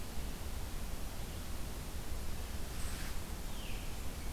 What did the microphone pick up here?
Veery